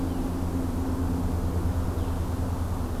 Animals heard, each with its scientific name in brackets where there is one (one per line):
Blue-headed Vireo (Vireo solitarius)